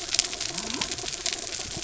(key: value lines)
label: biophony
recorder: SoundTrap 300

label: anthrophony, mechanical
recorder: SoundTrap 300